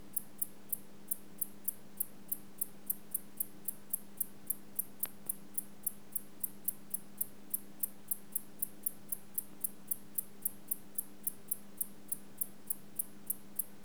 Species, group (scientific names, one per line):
Decticus albifrons
Orthoptera